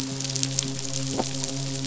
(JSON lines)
{"label": "biophony, midshipman", "recorder": "SoundTrap 500"}